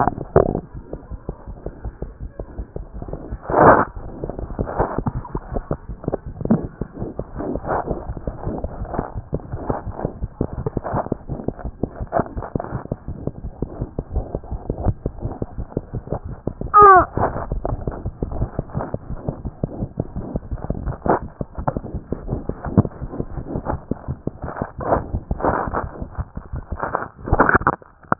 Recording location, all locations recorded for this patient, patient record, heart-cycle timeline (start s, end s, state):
aortic valve (AV)
aortic valve (AV)
#Age: Child
#Sex: Male
#Height: 74.0 cm
#Weight: 9.5 kg
#Pregnancy status: False
#Murmur: Absent
#Murmur locations: nan
#Most audible location: nan
#Systolic murmur timing: nan
#Systolic murmur shape: nan
#Systolic murmur grading: nan
#Systolic murmur pitch: nan
#Systolic murmur quality: nan
#Diastolic murmur timing: nan
#Diastolic murmur shape: nan
#Diastolic murmur grading: nan
#Diastolic murmur pitch: nan
#Diastolic murmur quality: nan
#Outcome: Normal
#Campaign: 2014 screening campaign
0.00	0.74	unannotated
0.74	0.82	S1
0.82	0.93	systole
0.93	0.97	S2
0.97	1.11	diastole
1.11	1.19	S1
1.19	1.29	systole
1.29	1.34	S2
1.34	1.48	diastole
1.48	1.55	S1
1.55	1.66	systole
1.66	1.70	S2
1.70	1.84	diastole
1.84	1.92	S1
1.92	2.03	systole
2.03	2.08	S2
2.08	2.21	diastole
2.21	2.28	S1
2.28	2.40	systole
2.40	2.44	S2
2.44	2.58	diastole
2.58	28.19	unannotated